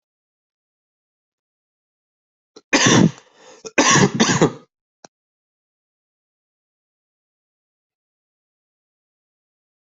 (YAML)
expert_labels:
- quality: good
  cough_type: dry
  dyspnea: false
  wheezing: false
  stridor: false
  choking: false
  congestion: false
  nothing: true
  diagnosis: COVID-19
  severity: mild
age: 46
gender: male
respiratory_condition: false
fever_muscle_pain: false
status: symptomatic